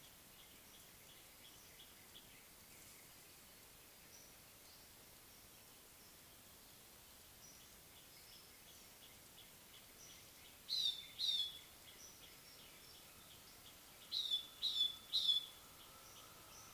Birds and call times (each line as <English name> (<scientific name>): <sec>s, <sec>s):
Black-collared Apalis (Oreolais pulcher): 10.9s, 14.7s